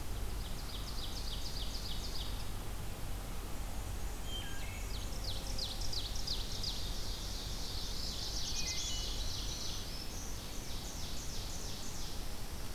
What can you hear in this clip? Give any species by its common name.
Ovenbird, Black-and-white Warbler, Wood Thrush, Black-throated Blue Warbler, Black-throated Green Warbler